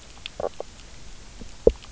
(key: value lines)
label: biophony, knock croak
recorder: SoundTrap 300